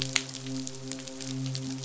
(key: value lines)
label: biophony, midshipman
recorder: SoundTrap 500